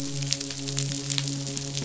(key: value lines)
label: biophony, midshipman
recorder: SoundTrap 500